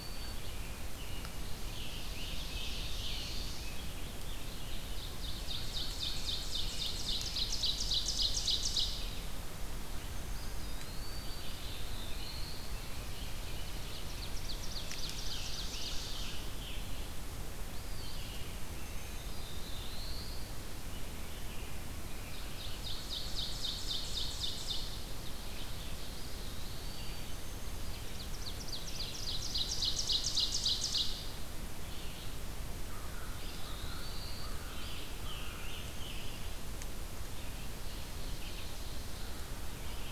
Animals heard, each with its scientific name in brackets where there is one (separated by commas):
American Crow (Corvus brachyrhynchos), Black-throated Blue Warbler (Setophaga caerulescens), Eastern Wood-Pewee (Contopus virens), Red-eyed Vireo (Vireo olivaceus), Ovenbird (Seiurus aurocapilla), Scarlet Tanager (Piranga olivacea)